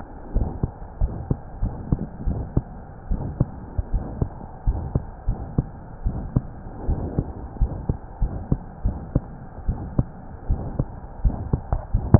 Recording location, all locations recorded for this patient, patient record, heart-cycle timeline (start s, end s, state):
pulmonary valve (PV)
aortic valve (AV)+pulmonary valve (PV)+tricuspid valve (TV)+mitral valve (MV)
#Age: Child
#Sex: Female
#Height: 108.0 cm
#Weight: 16.2 kg
#Pregnancy status: False
#Murmur: Present
#Murmur locations: aortic valve (AV)+mitral valve (MV)+pulmonary valve (PV)+tricuspid valve (TV)
#Most audible location: pulmonary valve (PV)
#Systolic murmur timing: Early-systolic
#Systolic murmur shape: Decrescendo
#Systolic murmur grading: II/VI
#Systolic murmur pitch: Medium
#Systolic murmur quality: Blowing
#Diastolic murmur timing: nan
#Diastolic murmur shape: nan
#Diastolic murmur grading: nan
#Diastolic murmur pitch: nan
#Diastolic murmur quality: nan
#Outcome: Abnormal
#Campaign: 2015 screening campaign
0.00	0.98	unannotated
0.98	1.14	S1
1.14	1.27	systole
1.27	1.40	S2
1.40	1.58	diastole
1.58	1.74	S1
1.74	1.90	systole
1.90	2.02	S2
2.02	2.23	diastole
2.23	2.40	S1
2.40	2.54	systole
2.54	2.66	S2
2.66	3.07	diastole
3.07	3.24	S1
3.24	3.37	systole
3.37	3.50	S2
3.50	3.89	diastole
3.89	4.04	S1
4.04	4.18	systole
4.18	4.30	S2
4.30	4.62	diastole
4.62	4.77	S1
4.77	4.92	systole
4.92	5.04	S2
5.04	5.24	diastole
5.24	5.38	S1
5.38	5.56	systole
5.56	5.66	S2
5.66	6.02	diastole
6.02	6.15	S1
6.15	6.34	systole
6.34	6.44	S2
6.44	6.86	diastole
6.86	6.98	S1
6.98	7.16	systole
7.16	7.28	S2
7.28	7.57	diastole
7.57	7.72	S1
7.72	7.86	systole
7.86	7.98	S2
7.98	8.18	diastole
8.18	8.32	S1
8.32	8.50	systole
8.50	8.60	S2
8.60	8.81	diastole
8.81	8.96	S1
8.96	9.12	systole
9.12	9.24	S2
9.24	9.64	diastole
9.64	9.77	S1
9.77	9.94	systole
9.94	10.08	S2
10.08	10.45	diastole
10.45	10.58	S1
10.58	12.19	unannotated